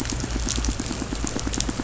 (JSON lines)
{"label": "biophony, pulse", "recorder": "SoundTrap 500"}